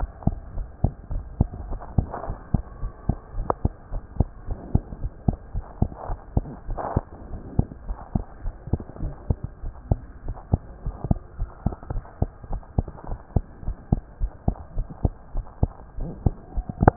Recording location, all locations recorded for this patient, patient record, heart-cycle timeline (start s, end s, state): tricuspid valve (TV)
aortic valve (AV)+pulmonary valve (PV)+tricuspid valve (TV)+mitral valve (MV)
#Age: Child
#Sex: Male
#Height: 117.0 cm
#Weight: 22.7 kg
#Pregnancy status: False
#Murmur: Absent
#Murmur locations: nan
#Most audible location: nan
#Systolic murmur timing: nan
#Systolic murmur shape: nan
#Systolic murmur grading: nan
#Systolic murmur pitch: nan
#Systolic murmur quality: nan
#Diastolic murmur timing: nan
#Diastolic murmur shape: nan
#Diastolic murmur grading: nan
#Diastolic murmur pitch: nan
#Diastolic murmur quality: nan
#Outcome: Normal
#Campaign: 2015 screening campaign
0.00	0.10	S1
0.10	0.26	systole
0.26	0.40	S2
0.40	0.54	diastole
0.54	0.68	S1
0.68	0.80	systole
0.80	0.94	S2
0.94	1.10	diastole
1.10	1.26	S1
1.26	1.38	systole
1.38	1.52	S2
1.52	1.66	diastole
1.66	1.80	S1
1.80	1.94	systole
1.94	2.10	S2
2.10	2.26	diastole
2.26	2.38	S1
2.38	2.50	systole
2.50	2.64	S2
2.64	2.81	diastole
2.81	2.92	S1
2.92	3.06	systole
3.06	3.20	S2
3.20	3.34	diastole
3.34	3.48	S1
3.48	3.60	systole
3.60	3.72	S2
3.72	3.91	diastole
3.91	4.02	S1
4.02	4.16	systole
4.16	4.28	S2
4.28	4.46	diastole
4.46	4.58	S1
4.58	4.70	systole
4.70	4.84	S2
4.84	5.00	diastole
5.00	5.12	S1
5.12	5.24	systole
5.24	5.38	S2
5.38	5.52	diastole
5.52	5.64	S1
5.64	5.78	systole
5.78	5.90	S2
5.90	6.07	diastole
6.07	6.20	S1
6.20	6.32	systole
6.32	6.48	S2
6.48	6.68	diastole
6.68	6.80	S1
6.80	6.94	systole
6.94	7.06	S2
7.06	7.26	diastole
7.26	7.40	S1
7.40	7.52	systole
7.52	7.66	S2
7.66	7.84	diastole
7.84	7.98	S1
7.98	8.13	systole
8.13	8.24	S2
8.24	8.42	diastole
8.42	8.54	S1
8.54	8.68	systole
8.68	8.80	S2
8.80	9.00	diastole
9.00	9.14	S1
9.14	9.26	systole
9.26	9.38	S2
9.38	9.61	diastole
9.61	9.74	S1
9.74	9.87	systole
9.87	10.04	S2
10.04	10.24	diastole
10.24	10.36	S1
10.36	10.49	systole
10.49	10.62	S2
10.62	10.83	diastole
10.83	10.96	S1
10.96	11.04	systole
11.04	11.20	S2
11.20	11.38	diastole
11.38	11.50	S1
11.50	11.62	systole
11.62	11.74	S2
11.74	11.90	diastole
11.90	12.02	S1
12.02	12.18	systole
12.18	12.30	S2
12.30	12.48	diastole
12.48	12.62	S1
12.62	12.74	systole
12.74	12.88	S2
12.88	13.08	diastole
13.08	13.18	S1
13.18	13.32	systole
13.32	13.46	S2
13.46	13.65	diastole
13.65	13.76	S1
13.76	13.88	systole
13.88	14.02	S2
14.02	14.19	diastole
14.19	14.32	S1
14.32	14.44	systole
14.44	14.58	S2
14.58	14.74	diastole
14.74	14.86	S1
14.86	15.00	systole
15.00	15.14	S2
15.14	15.32	diastole
15.32	15.46	S1
15.46	15.59	systole
15.59	15.72	S2
15.72	15.96	diastole
15.96	16.13	S1
16.13	16.24	systole
16.24	16.36	S2
16.36	16.53	diastole
16.53	16.66	S1
16.66	16.80	systole
16.80	16.96	S2